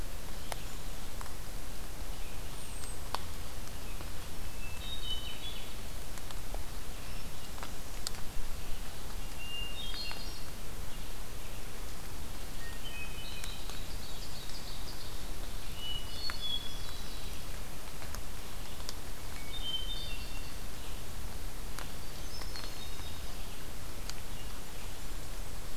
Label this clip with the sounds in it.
Hermit Thrush, Ovenbird